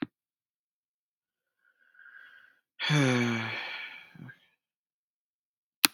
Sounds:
Sigh